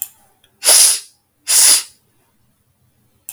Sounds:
Sniff